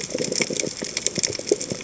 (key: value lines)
label: biophony, chatter
recorder: HydroMoth